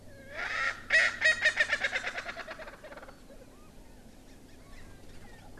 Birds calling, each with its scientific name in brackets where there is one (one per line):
Erckel's Francolin (Pternistis erckelii)
Chinese Hwamei (Garrulax canorus)